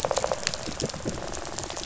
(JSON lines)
{"label": "biophony, rattle response", "recorder": "SoundTrap 500"}